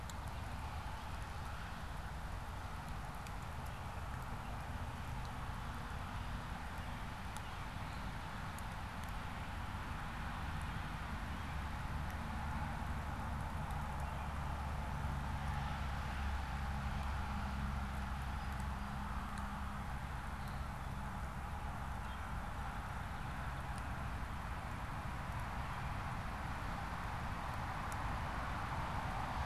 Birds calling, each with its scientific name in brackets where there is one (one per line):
Song Sparrow (Melospiza melodia)